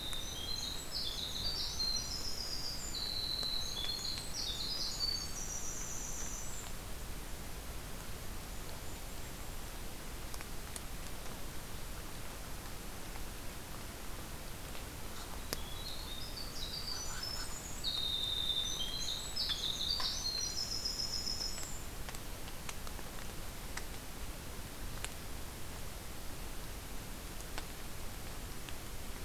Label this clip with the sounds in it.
Winter Wren, Golden-crowned Kinglet